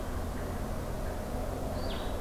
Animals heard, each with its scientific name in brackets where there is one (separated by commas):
Blue-headed Vireo (Vireo solitarius)